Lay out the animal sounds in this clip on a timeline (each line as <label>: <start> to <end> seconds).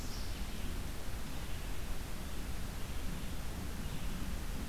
Red-eyed Vireo (Vireo olivaceus): 0.0 to 4.7 seconds